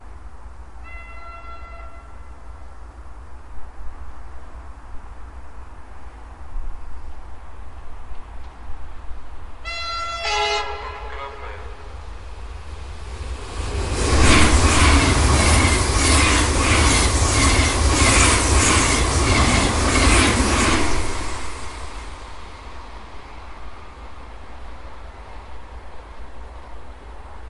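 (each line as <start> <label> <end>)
0.0 A train moves rhythmically in the distance outdoors. 13.6
0.8 A horn honks in the distance and fades away. 3.6
9.5 A horn honks loudly and rhythmically outdoors. 11.0
11.0 A man is speaking loudly over the radio. 12.3
13.6 A train passes by with a loud, metallic sound in a steady pattern that gradually fades into the distance. 27.4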